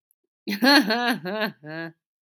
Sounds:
Laughter